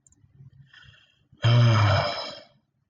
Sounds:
Sigh